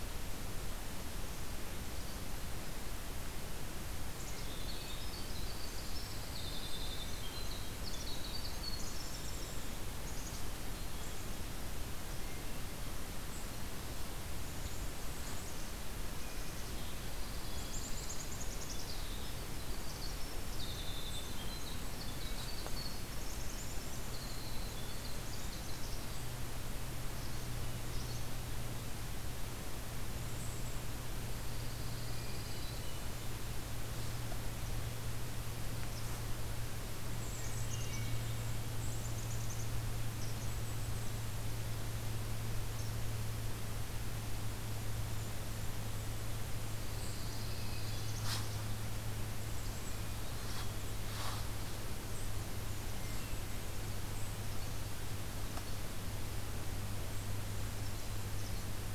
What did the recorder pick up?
Black-capped Chickadee, Winter Wren, Golden-crowned Kinglet, Hermit Thrush, Pine Warbler